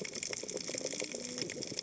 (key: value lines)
label: biophony, cascading saw
recorder: HydroMoth